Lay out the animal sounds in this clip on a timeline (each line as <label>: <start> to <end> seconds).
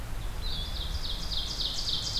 Ovenbird (Seiurus aurocapilla): 0.2 to 2.2 seconds